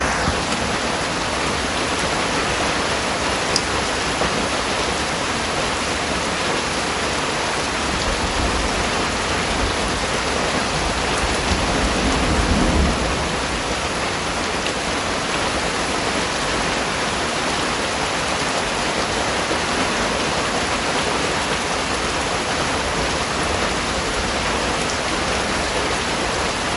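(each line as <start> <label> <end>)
0.0 Heavy rain falling. 26.8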